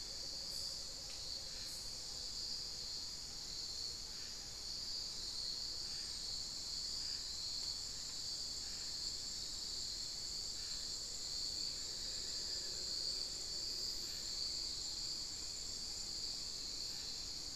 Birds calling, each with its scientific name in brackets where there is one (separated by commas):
Amazonian Motmot (Momotus momota), Amazonian Barred-Woodcreeper (Dendrocolaptes certhia)